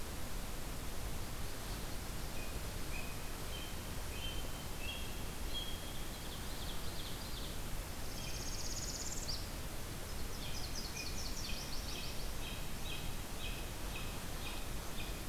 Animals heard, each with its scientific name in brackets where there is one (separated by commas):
American Robin (Turdus migratorius), Ovenbird (Seiurus aurocapilla), Northern Parula (Setophaga americana), Nashville Warbler (Leiothlypis ruficapilla)